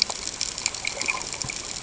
{"label": "ambient", "recorder": "HydroMoth"}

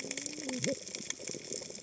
{"label": "biophony, cascading saw", "recorder": "HydroMoth"}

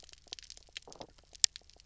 {"label": "biophony, knock croak", "recorder": "SoundTrap 300"}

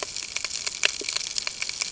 {"label": "ambient", "recorder": "HydroMoth"}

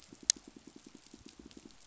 {"label": "biophony, pulse", "recorder": "SoundTrap 500"}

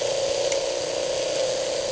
{"label": "anthrophony, boat engine", "recorder": "HydroMoth"}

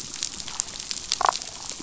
{"label": "biophony, damselfish", "recorder": "SoundTrap 500"}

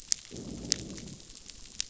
{"label": "biophony, growl", "recorder": "SoundTrap 500"}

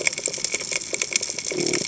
{"label": "biophony", "recorder": "HydroMoth"}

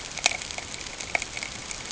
{"label": "ambient", "recorder": "HydroMoth"}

